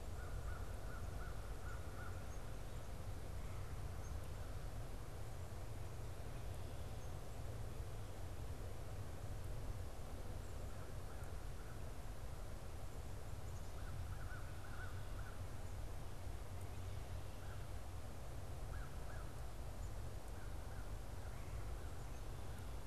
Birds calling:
Red-bellied Woodpecker (Melanerpes carolinus), American Crow (Corvus brachyrhynchos)

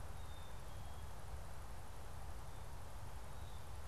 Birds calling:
Black-capped Chickadee (Poecile atricapillus)

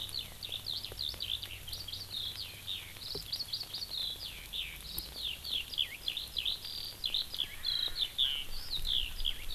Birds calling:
Erckel's Francolin (Pternistis erckelii), Eurasian Skylark (Alauda arvensis)

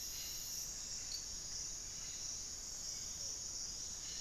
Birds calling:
Mealy Parrot (Amazona farinosa), Cobalt-winged Parakeet (Brotogeris cyanoptera), Hauxwell's Thrush (Turdus hauxwelli)

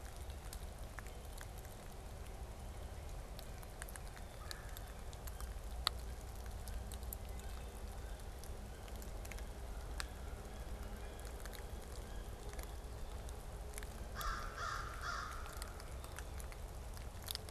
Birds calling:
Red-bellied Woodpecker (Melanerpes carolinus), American Crow (Corvus brachyrhynchos)

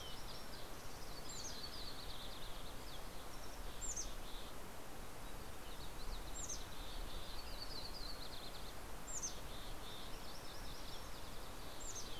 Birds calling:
Green-tailed Towhee (Pipilo chlorurus), Mountain Quail (Oreortyx pictus), MacGillivray's Warbler (Geothlypis tolmiei), Mountain Chickadee (Poecile gambeli), Yellow-rumped Warbler (Setophaga coronata)

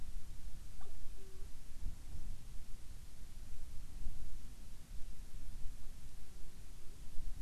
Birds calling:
Hawaiian Petrel (Pterodroma sandwichensis)

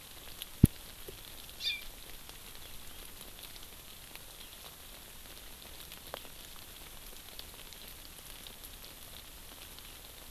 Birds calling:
Hawaii Amakihi (Chlorodrepanis virens)

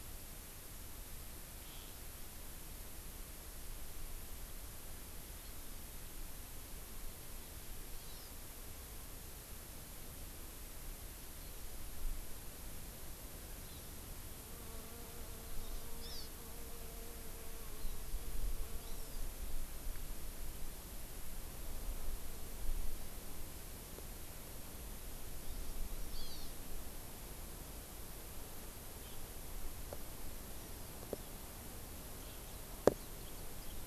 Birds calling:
Hawaii Amakihi (Chlorodrepanis virens), Hawaiian Hawk (Buteo solitarius)

